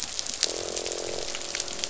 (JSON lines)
{"label": "biophony, croak", "recorder": "SoundTrap 500"}